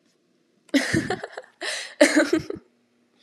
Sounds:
Laughter